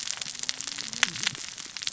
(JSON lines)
{"label": "biophony, cascading saw", "recorder": "SoundTrap 600 or HydroMoth"}